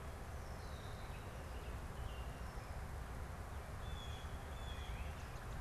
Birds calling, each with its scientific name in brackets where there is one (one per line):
Blue Jay (Cyanocitta cristata)